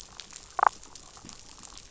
{"label": "biophony, damselfish", "recorder": "SoundTrap 500"}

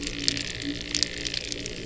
{"label": "anthrophony, boat engine", "recorder": "SoundTrap 300"}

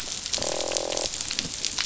{"label": "biophony, croak", "recorder": "SoundTrap 500"}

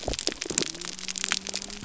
{"label": "biophony", "recorder": "SoundTrap 300"}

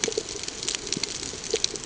{"label": "ambient", "recorder": "HydroMoth"}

